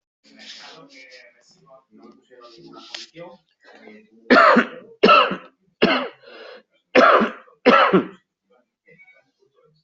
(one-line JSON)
{"expert_labels": [{"quality": "good", "cough_type": "wet", "dyspnea": false, "wheezing": false, "stridor": false, "choking": false, "congestion": false, "nothing": true, "diagnosis": "lower respiratory tract infection", "severity": "mild"}], "age": 47, "gender": "male", "respiratory_condition": false, "fever_muscle_pain": true, "status": "symptomatic"}